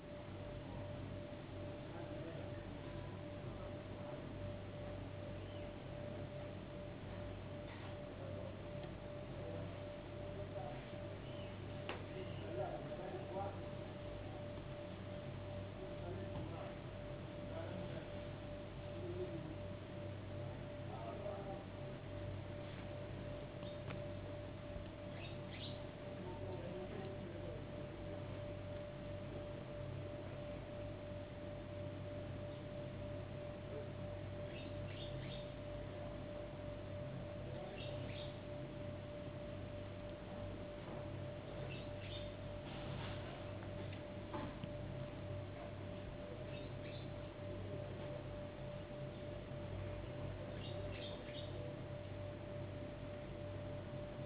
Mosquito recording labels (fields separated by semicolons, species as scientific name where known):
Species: no mosquito; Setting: insect culture